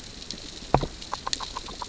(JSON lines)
{"label": "biophony, grazing", "recorder": "SoundTrap 600 or HydroMoth"}